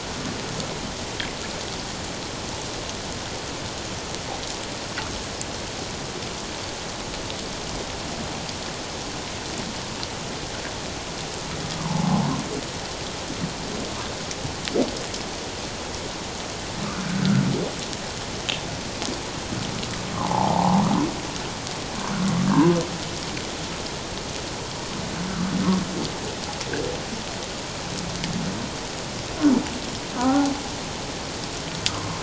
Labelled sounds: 11.7	12.3	humpback whale, 0.78 to 1.2 kHz
17.0	17.4	humpback whale, 1.3 to 1.6 kHz
20.1	20.8	humpback whale, 0.78 to 1.2 kHz
30.2	30.5	humpback whale, 0.78 to 1.5 kHz
31.9	32.2	humpback whale, 1.0 to 1.3 kHz

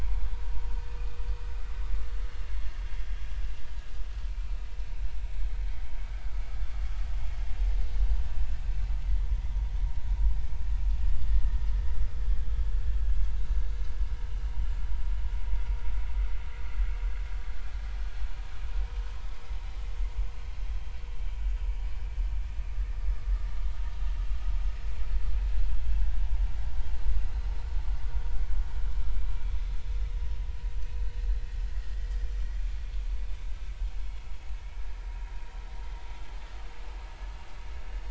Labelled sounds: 1.0	1.2	vessel noise, 2.4 to 2.6 kHz
2.8	3.2	vessel noise, 3.2 to 3.4 kHz
34.0	34.3	vessel noise, 3.3 to 3.4 kHz

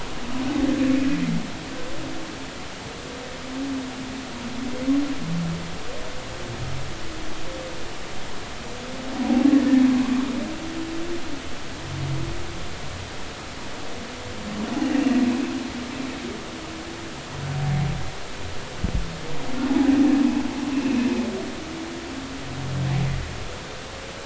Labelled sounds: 15.0	15.2	humpback whale, 2.6 to 2.9 kHz
19.7	20.0	humpback whale, 0.80 to 0.86 kHz

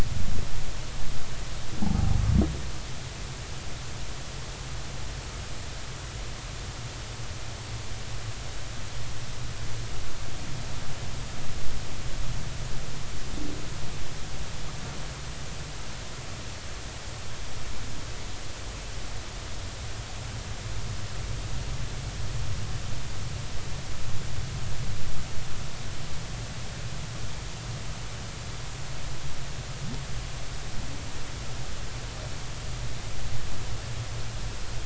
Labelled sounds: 1.8	2.2	humpback whale, 0.80 to 0.93 kHz

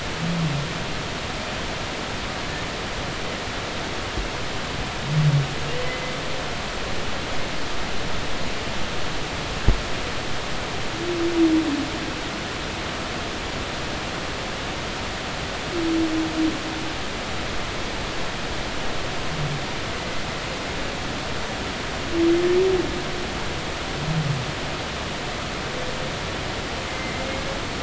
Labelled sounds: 5.8	6.1	humpback whale, 2.0 to 2.1 kHz
26.9	27.2	humpback whale, 2.0 to 2.2 kHz

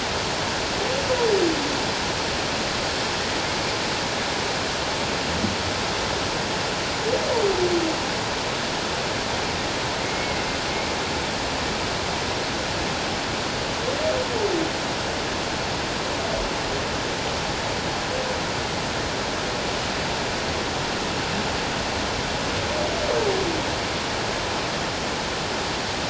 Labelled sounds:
10.1	10.5	humpback whale, 2.0 to 2.2 kHz

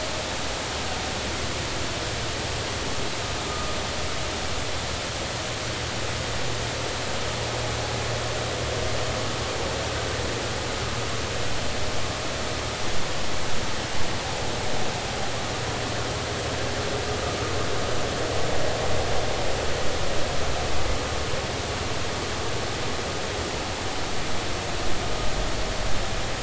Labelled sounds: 3.5	3.8	vessel noise, 1.2 to 1.3 kHz

